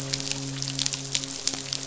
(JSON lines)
{"label": "biophony, midshipman", "recorder": "SoundTrap 500"}